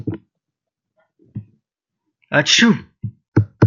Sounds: Sneeze